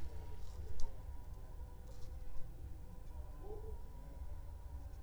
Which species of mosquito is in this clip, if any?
mosquito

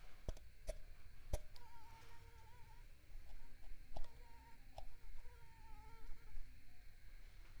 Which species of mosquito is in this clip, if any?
Mansonia africanus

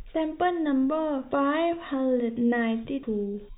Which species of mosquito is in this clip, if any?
no mosquito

